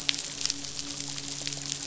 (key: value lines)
label: biophony, midshipman
recorder: SoundTrap 500